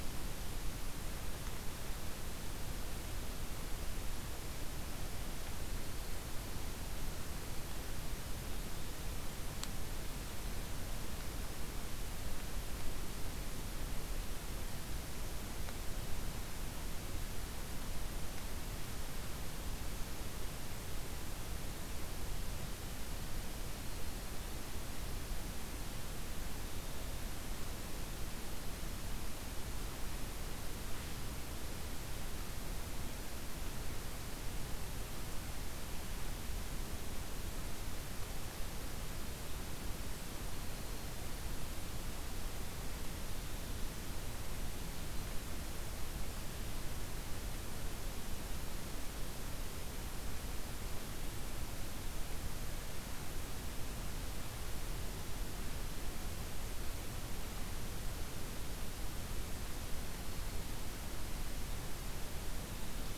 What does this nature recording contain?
forest ambience